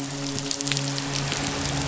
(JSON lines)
{"label": "biophony, midshipman", "recorder": "SoundTrap 500"}